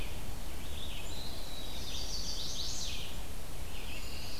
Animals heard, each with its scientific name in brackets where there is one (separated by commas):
Red-eyed Vireo (Vireo olivaceus), Brown Creeper (Certhia americana), Pine Warbler (Setophaga pinus), Eastern Wood-Pewee (Contopus virens), Chestnut-sided Warbler (Setophaga pensylvanica)